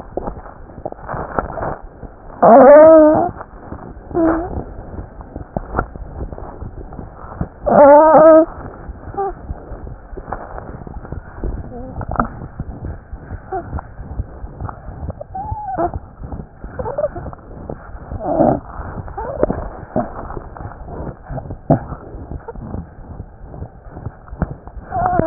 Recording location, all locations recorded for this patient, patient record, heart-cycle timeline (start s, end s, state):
aortic valve (AV)
aortic valve (AV)+mitral valve (MV)
#Age: Infant
#Sex: Female
#Height: 58.0 cm
#Weight: 4.48 kg
#Pregnancy status: False
#Murmur: Present
#Murmur locations: aortic valve (AV)+mitral valve (MV)
#Most audible location: mitral valve (MV)
#Systolic murmur timing: Holosystolic
#Systolic murmur shape: Plateau
#Systolic murmur grading: I/VI
#Systolic murmur pitch: Medium
#Systolic murmur quality: Blowing
#Diastolic murmur timing: nan
#Diastolic murmur shape: nan
#Diastolic murmur grading: nan
#Diastolic murmur pitch: nan
#Diastolic murmur quality: nan
#Outcome: Abnormal
#Campaign: 2015 screening campaign
0.00	13.11	unannotated
13.11	13.21	S1
13.21	13.31	systole
13.31	13.42	S2
13.42	13.53	diastole
13.53	13.64	S1
13.64	13.72	systole
13.72	13.84	S2
13.84	13.97	diastole
13.97	14.07	S1
14.07	14.18	systole
14.18	14.27	S2
14.27	14.42	diastole
14.42	14.50	S1
14.50	14.63	systole
14.63	14.70	S2
14.70	14.86	diastole
14.86	14.92	S1
14.92	15.03	systole
15.03	15.13	S2
15.13	15.29	diastole
15.29	15.39	S1
15.39	15.50	systole
15.50	15.57	S2
15.57	15.72	diastole
15.72	15.82	S1
15.82	15.93	systole
15.93	16.00	S2
16.00	25.26	unannotated